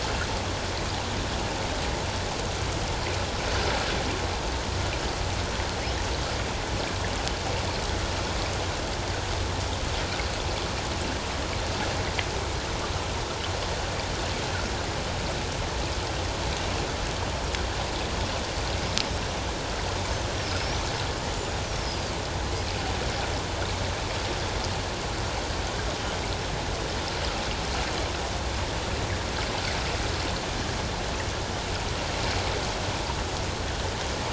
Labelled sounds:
20.4	20.9	killer whale, 5.0 to 6.2 kHz
21.6	22.0	killer whale, 4.9 to 6.2 kHz

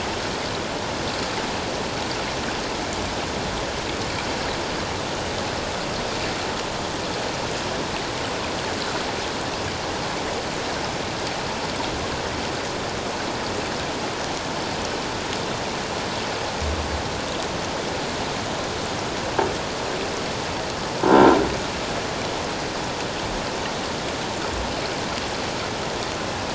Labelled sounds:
21.1	21.4	croaking sound likely from a nearby submerged object, 1.3 to 1.4 kHz

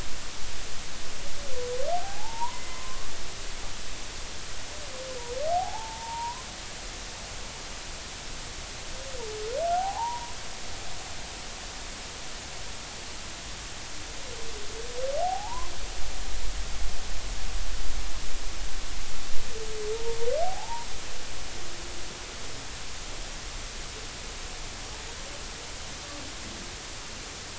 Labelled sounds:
2.0	3.1	humpback whale, 0.80 to 2.1 kHz
5.5	6.5	humpback whale, 0.80 to 1.1 kHz
9.8	10.4	humpback whale, 0.80 to 1.1 kHz
15.2	15.7	humpback whale, 0.80 to 1.1 kHz
19.9	20.9	humpback whale, 0.80 to 0.99 kHz

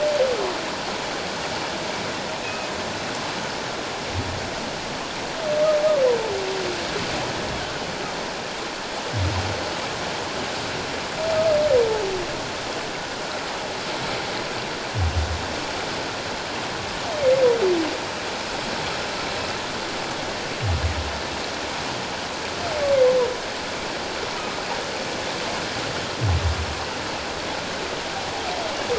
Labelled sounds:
2.4	2.7	humpback whale, 2.4 to 2.6 kHz
24.4	24.6	humpback whale, 1.2 to 1.4 kHz

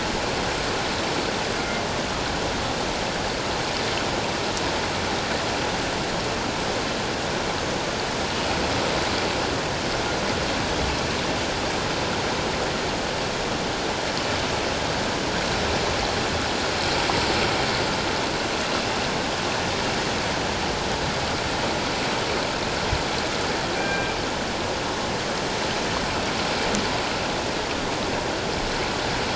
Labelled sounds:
23.8	24.1	killer whale, northern resident, G clan, 1.5 to 2.4 kHz

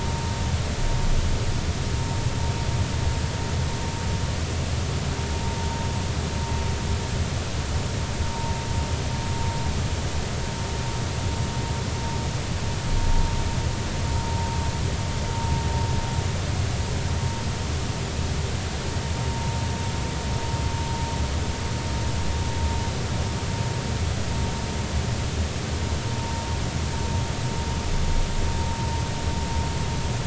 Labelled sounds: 8.3	8.5	vessel noise, 0.86 to 0.99 kHz
19.3	19.5	vessel noise, 0.90 to 1.0 kHz

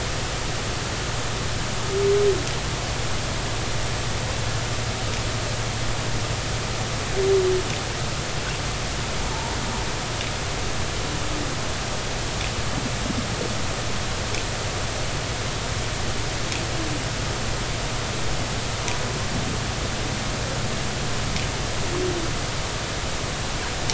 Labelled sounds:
9.3	9.6	humpback whale, 0.83 to 1.0 kHz

